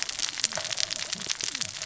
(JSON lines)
{"label": "biophony, cascading saw", "recorder": "SoundTrap 600 or HydroMoth"}